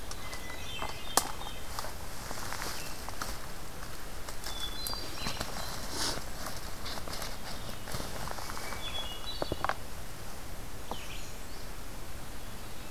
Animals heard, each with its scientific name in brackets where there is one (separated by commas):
American Redstart (Setophaga ruticilla), Hermit Thrush (Catharus guttatus), Red-eyed Vireo (Vireo olivaceus)